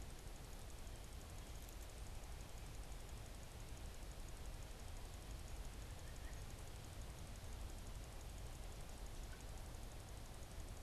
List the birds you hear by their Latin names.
Sitta carolinensis